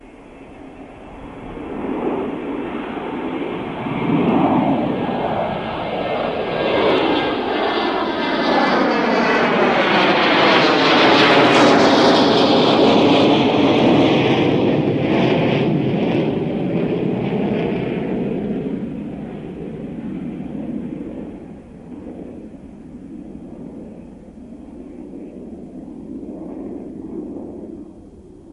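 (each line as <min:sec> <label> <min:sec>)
0:00.0 A jet aircraft is taking off. 0:28.5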